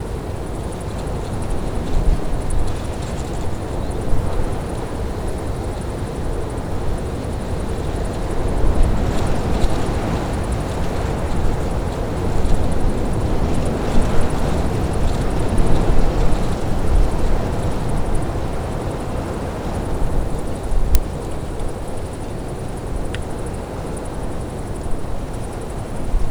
Are there human voices?
no